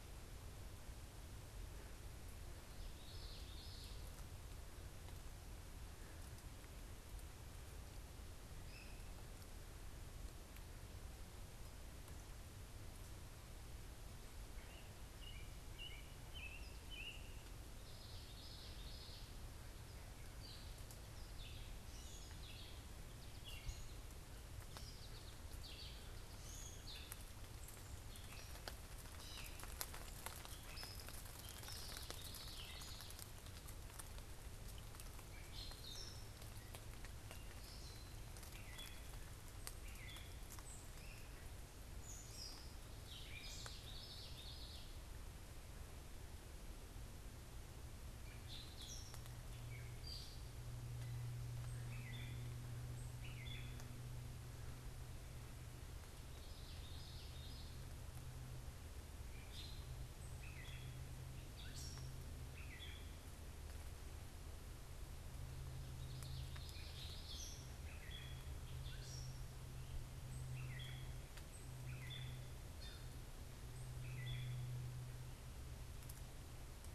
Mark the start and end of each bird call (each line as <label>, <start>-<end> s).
Common Yellowthroat (Geothlypis trichas), 2.8-3.9 s
Great Crested Flycatcher (Myiarchus crinitus), 8.5-8.9 s
American Robin (Turdus migratorius), 14.4-17.3 s
Common Yellowthroat (Geothlypis trichas), 17.7-19.3 s
Gray Catbird (Dumetella carolinensis), 20.1-31.8 s
American Goldfinch (Spinus tristis), 22.8-25.5 s
Common Yellowthroat (Geothlypis trichas), 31.5-33.2 s
Gray Catbird (Dumetella carolinensis), 34.6-43.9 s
Great Crested Flycatcher (Myiarchus crinitus), 40.8-41.4 s
Common Yellowthroat (Geothlypis trichas), 43.2-44.8 s
Gray Catbird (Dumetella carolinensis), 48.0-54.0 s
Common Yellowthroat (Geothlypis trichas), 56.2-57.7 s
Gray Catbird (Dumetella carolinensis), 59.0-63.2 s
Common Yellowthroat (Geothlypis trichas), 65.8-67.5 s
Gray Catbird (Dumetella carolinensis), 66.6-74.6 s